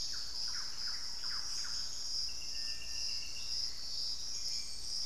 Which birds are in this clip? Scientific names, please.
Turdus hauxwelli, Crypturellus soui, Campylorhynchus turdinus